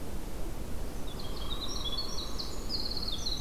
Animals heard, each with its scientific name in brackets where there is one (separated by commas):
American Crow (Corvus brachyrhynchos), Hairy Woodpecker (Dryobates villosus), Winter Wren (Troglodytes hiemalis)